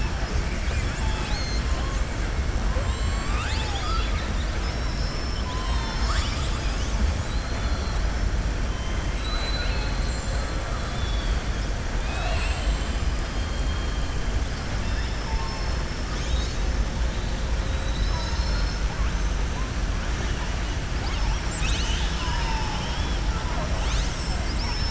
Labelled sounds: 0.4	1.7	killer whale, southern resident, 0.87 to 7.8 kHz
2.8	4.5	killer whale, southern resident, 0.83 to 7.8 kHz
7.2	8.0	killer whale, southern resident, 3.3 to 4.5 kHz
8.8	10.5	killer whale, southern resident, 1.2 to 4.5 kHz
10.8	11.4	killer whale, southern resident, 3.3 to 5.4 kHz
11.9	13.1	killer whale, southern resident, 0.67 to 7.9 kHz
14.8	15.3	killer whale, southern resident, 1.7 to 5.3 kHz
17.6	18.8	killer whale, southern resident, 3.7 to 6.8 kHz

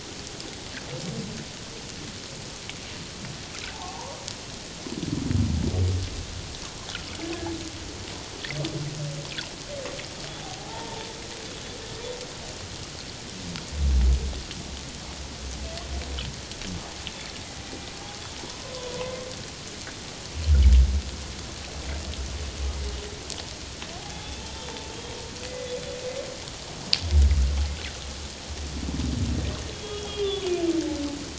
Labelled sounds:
3.7	4.0	humpback whale, 0.78 to 0.97 kHz
10.4	11.1	humpback whale, 0.78 to 0.97 kHz
24.0	25.1	humpback whale, 0.78 to 3.5 kHz
25.5	25.7	humpback whale, 2.0 to 2.1 kHz
29.7	30.4	humpback whale, 3.0 to 3.5 kHz

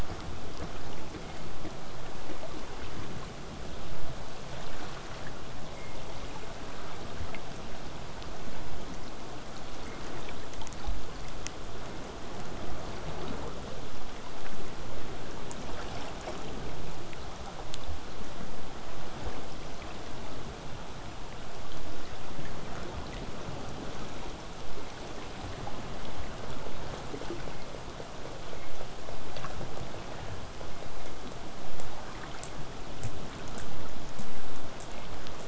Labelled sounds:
31.8	35.4	killer whale, southern resident, J pod, 4.7 to 8.0 kHz

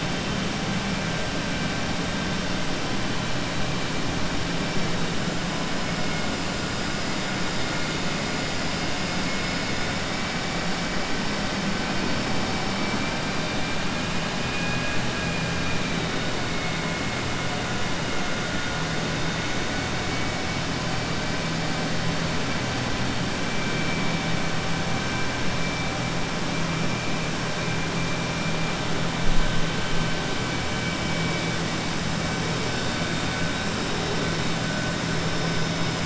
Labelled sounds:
15.1	16.1	vessel noise, 1.6 to 3.0 kHz

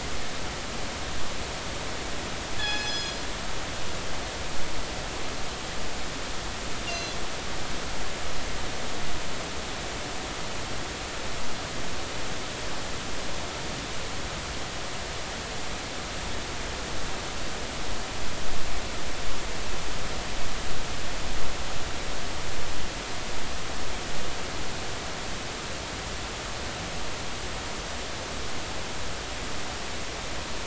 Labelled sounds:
2.6	3.2	killer whale, northern resident, G clan, call N24ii, 1.6 to 6.9 kHz
6.9	7.1	killer whale, northern resident, G clan, call N24ii, 2.7 to 6.2 kHz

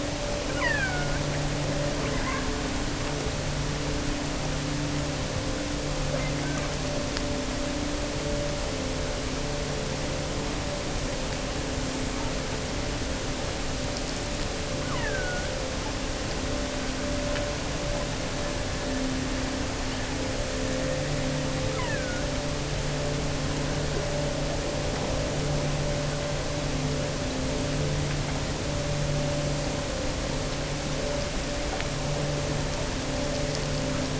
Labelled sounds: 0.5	1.3	killer whale, offshore, 0.75 to 5.4 kHz
1.9	2.6	killer whale, offshore, 0.80 to 4.0 kHz
6.0	6.7	killer whale, offshore, 0.95 to 2.2 kHz
14.7	15.7	killer whale, offshore, 0.77 to 3.2 kHz
21.6	22.3	killer whale, offshore, 0.73 to 3.2 kHz

